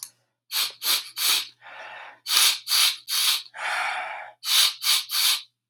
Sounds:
Sniff